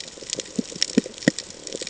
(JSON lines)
{"label": "ambient", "recorder": "HydroMoth"}